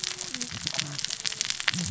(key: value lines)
label: biophony, cascading saw
recorder: SoundTrap 600 or HydroMoth